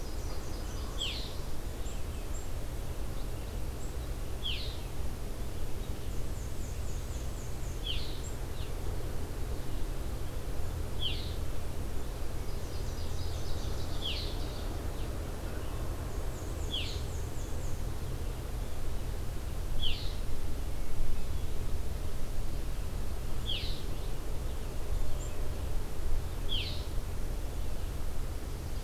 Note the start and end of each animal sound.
0.0s-1.5s: Nashville Warbler (Leiothlypis ruficapilla)
0.9s-1.3s: Red-eyed Vireo (Vireo olivaceus)
4.3s-4.9s: Red-eyed Vireo (Vireo olivaceus)
6.1s-8.0s: Black-and-white Warbler (Mniotilta varia)
7.7s-8.2s: Red-eyed Vireo (Vireo olivaceus)
10.9s-11.4s: Red-eyed Vireo (Vireo olivaceus)
12.6s-14.3s: Nashville Warbler (Leiothlypis ruficapilla)
13.8s-14.4s: Red-eyed Vireo (Vireo olivaceus)
16.3s-17.9s: Black-and-white Warbler (Mniotilta varia)
16.6s-17.1s: Red-eyed Vireo (Vireo olivaceus)
19.7s-20.1s: Red-eyed Vireo (Vireo olivaceus)
23.4s-23.9s: Red-eyed Vireo (Vireo olivaceus)
26.4s-26.9s: Red-eyed Vireo (Vireo olivaceus)

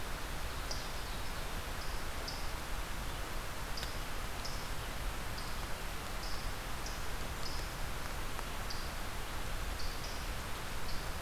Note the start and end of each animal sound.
0.0s-11.2s: unknown mammal

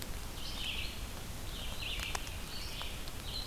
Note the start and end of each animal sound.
0.0s-3.5s: Red-eyed Vireo (Vireo olivaceus)

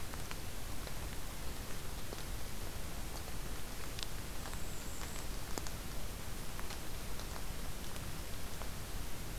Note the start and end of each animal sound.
4.3s-5.3s: Golden-crowned Kinglet (Regulus satrapa)

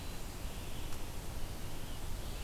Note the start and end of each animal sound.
0.4s-2.4s: Red-eyed Vireo (Vireo olivaceus)

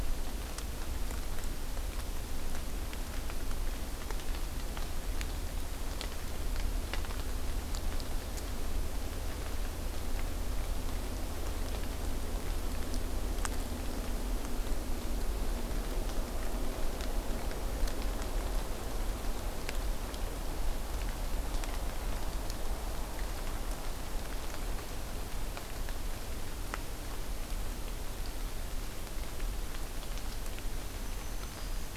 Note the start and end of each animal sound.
30.8s-32.0s: Black-throated Green Warbler (Setophaga virens)

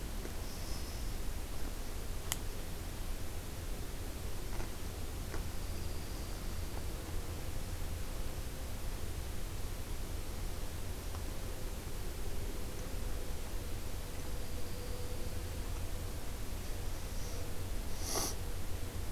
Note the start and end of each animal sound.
0.2s-1.2s: Black-capped Chickadee (Poecile atricapillus)
5.3s-7.5s: Dark-eyed Junco (Junco hyemalis)
14.0s-15.7s: Dark-eyed Junco (Junco hyemalis)

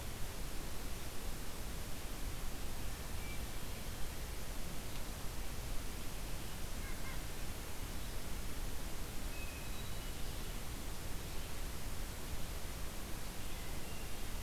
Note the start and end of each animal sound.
2.6s-3.7s: Hermit Thrush (Catharus guttatus)
6.7s-7.4s: White-breasted Nuthatch (Sitta carolinensis)
9.1s-10.6s: Hermit Thrush (Catharus guttatus)
13.1s-14.4s: Hermit Thrush (Catharus guttatus)

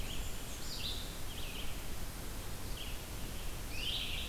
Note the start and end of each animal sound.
0.0s-1.1s: Black-and-white Warbler (Mniotilta varia)
0.0s-1.8s: Red-eyed Vireo (Vireo olivaceus)
2.6s-4.3s: Red-eyed Vireo (Vireo olivaceus)
3.5s-4.3s: Scarlet Tanager (Piranga olivacea)

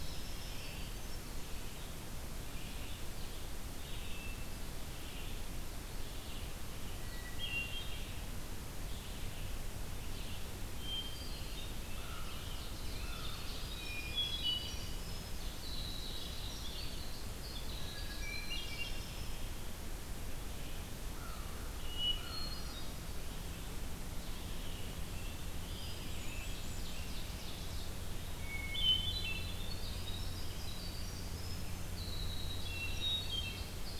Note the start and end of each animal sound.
0.0s-0.8s: Winter Wren (Troglodytes hiemalis)
0.0s-34.0s: Red-eyed Vireo (Vireo olivaceus)
3.7s-4.7s: Hermit Thrush (Catharus guttatus)
6.9s-8.1s: Hermit Thrush (Catharus guttatus)
10.9s-11.7s: Hermit Thrush (Catharus guttatus)
11.9s-13.7s: Ovenbird (Seiurus aurocapilla)
11.9s-13.6s: American Crow (Corvus brachyrhynchos)
12.9s-19.5s: Winter Wren (Troglodytes hiemalis)
13.6s-15.1s: Hermit Thrush (Catharus guttatus)
17.7s-19.1s: Hermit Thrush (Catharus guttatus)
21.1s-22.5s: American Crow (Corvus brachyrhynchos)
21.7s-23.1s: Hermit Thrush (Catharus guttatus)
24.6s-27.2s: Scarlet Tanager (Piranga olivacea)
26.0s-27.3s: Hermit Thrush (Catharus guttatus)
26.2s-28.0s: Ovenbird (Seiurus aurocapilla)
28.3s-29.8s: Hermit Thrush (Catharus guttatus)
29.2s-34.0s: Winter Wren (Troglodytes hiemalis)
32.5s-33.8s: Hermit Thrush (Catharus guttatus)

